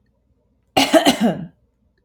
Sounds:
Cough